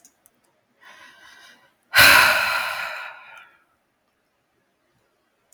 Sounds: Sigh